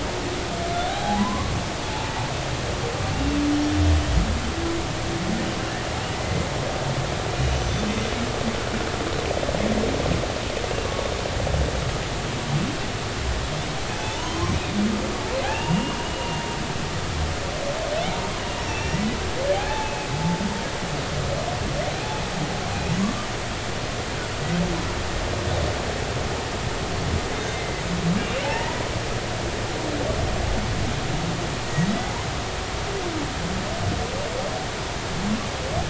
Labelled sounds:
0.9	1.5	humpback whale, 0.80 to 1.2 kHz
3.1	3.4	humpback whale, 2.7 to 2.8 kHz
6.1	6.5	humpback whale, 2.0 to 2.1 kHz
7.4	8.0	humpback whale, 2.8 to 6.2 kHz
14.0	14.6	humpback whale, 0.83 to 3.2 kHz
15.4	16.4	humpback whale, 0.80 to 2.9 kHz
18.7	19.1	humpback whale, 1.8 to 5.9 kHz
19.5	20.1	humpback whale, 0.80 to 2.7 kHz
27.5	27.8	humpback whale, 2.0 to 2.1 kHz
28.4	28.8	humpback whale, 0.80 to 1.0 kHz
31.6	31.9	humpback whale, 1.9 to 2.0 kHz

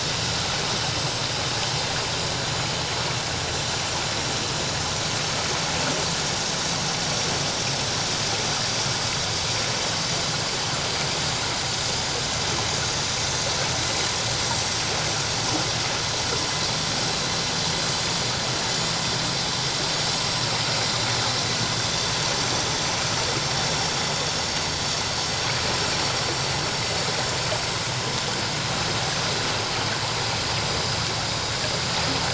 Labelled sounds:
10.1	10.4	vessel noise, 7.2 to 7.3 kHz

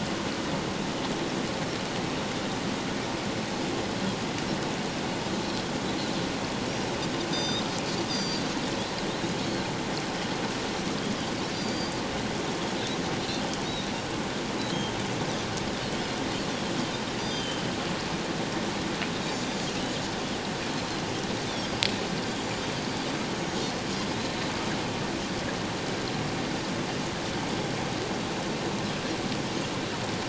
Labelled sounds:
6.7	6.9	Pacific white-sided dolphin, 5.5 to 5.7 kHz
7.3	8.4	Pacific white-sided dolphin, 3.5 to 7.4 kHz
9.4	9.6	Pacific white-sided dolphin, 4.2 to 4.5 kHz
11.5	12.0	Pacific white-sided dolphin, 4.5 to 7.2 kHz
14.7	15.0	Pacific white-sided dolphin, 3.1 to 6.5 kHz
17.2	17.6	Pacific white-sided dolphin, 3.0 to 7.2 kHz
19.3	19.6	Pacific white-sided dolphin, 4.6 to 4.8 kHz
22.4	22.6	Pacific white-sided dolphin, 7.0 to 7.1 kHz

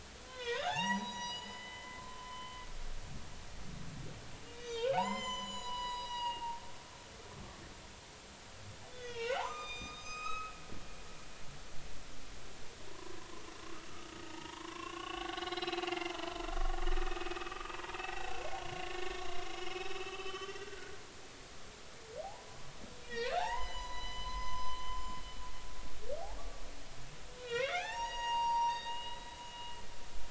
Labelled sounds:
0.2	2.6	humpback whale, 0.80 to 7.0 kHz
4.5	6.6	humpback whale, 0.80 to 7.9 kHz
8.9	10.5	humpback whale, 0.80 to 7.7 kHz
12.9	13.3	humpback whale, 0.93 to 1.1 kHz
14.2	16.4	humpback whale, 0.80 to 4.2 kHz
16.9	20.9	humpback whale, 0.80 to 6.3 kHz
22.2	24.9	humpback whale, 0.80 to 8.0 kHz
27.4	29.8	humpback whale, 0.80 to 6.8 kHz

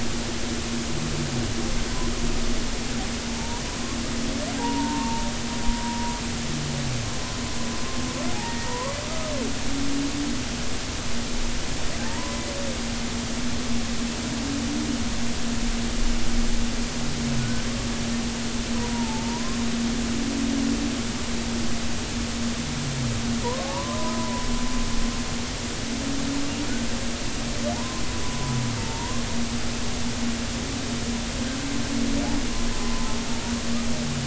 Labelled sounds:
3.3	3.6	humpback whale, 0.83 to 0.99 kHz
4.5	5.2	humpback whale, 0.80 to 1.2 kHz
8.3	9.0	humpback whale, 0.80 to 1.9 kHz
12.0	12.5	humpback whale, 0.80 to 1.1 kHz
17.4	17.6	humpback whale, 1.4 to 1.6 kHz
18.7	19.6	humpback whale, 0.83 to 1.1 kHz
23.4	24.4	humpback whale, 0.80 to 1.3 kHz
27.7	29.2	humpback whale, 0.80 to 1.1 kHz
32.8	33.1	humpback whale, 0.99 to 1.1 kHz

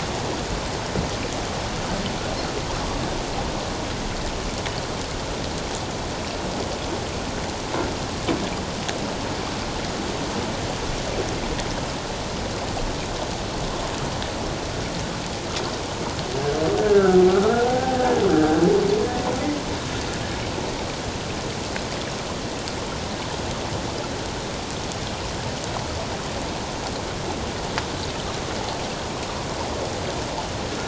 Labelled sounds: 16.8	18.0	humpback whale, 0.78 to 1.8 kHz

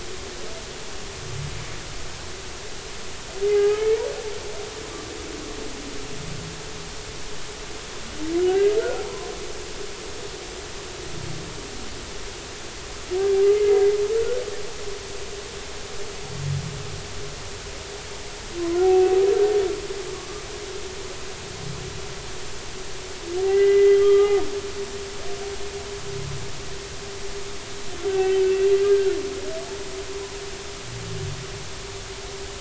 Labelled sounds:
3.5	3.9	humpback whale, 0.80 to 1.3 kHz
8.4	9.0	humpback whale, 1.3 to 1.7 kHz
13.5	14.4	humpback whale, 1.3 to 2.1 kHz
18.8	19.3	humpback whale, 0.80 to 0.83 kHz
23.4	24.4	humpback whale, 1.2 to 2.9 kHz
28.1	29.1	humpback whale, 1.5 to 2.8 kHz

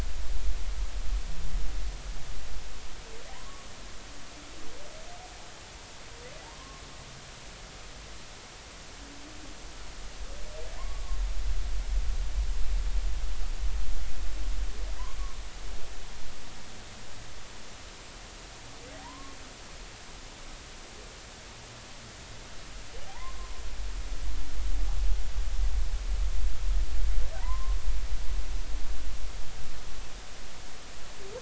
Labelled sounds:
6.5	6.8	humpback whale, 0.99 to 1.1 kHz
19.0	19.4	humpback whale, 0.90 to 1.2 kHz
23.1	23.6	humpback whale, 0.80 to 1.1 kHz
27.4	27.7	humpback whale, 0.90 to 1.2 kHz

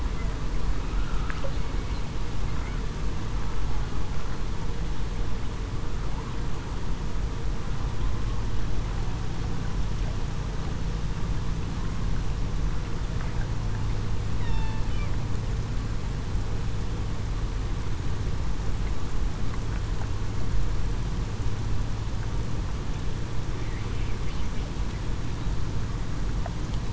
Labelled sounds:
14.4	14.8	killer whale, southern resident, 0.87 to 0.98 kHz

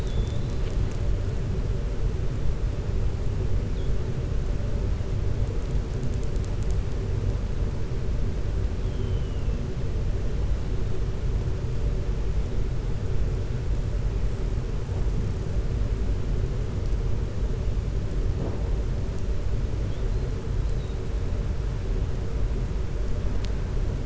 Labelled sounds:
8.8	9.5	killer whale, 2.7 to 3.4 kHz

